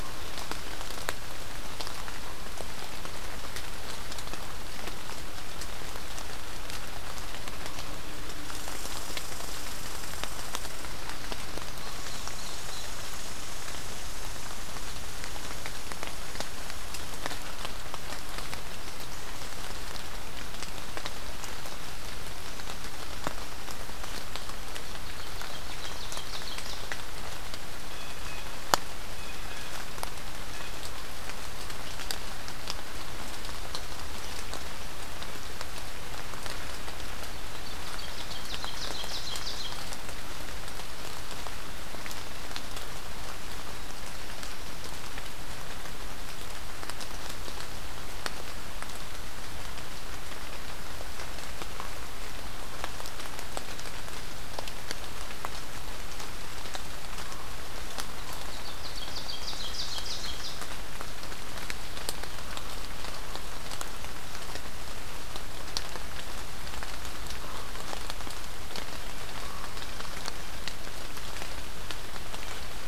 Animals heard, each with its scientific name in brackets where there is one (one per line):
Ovenbird (Seiurus aurocapilla)
Common Raven (Corvus corax)
Red Squirrel (Tamiasciurus hudsonicus)
Blue Jay (Cyanocitta cristata)